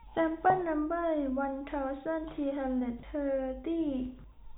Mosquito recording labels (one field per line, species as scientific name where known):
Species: no mosquito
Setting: cup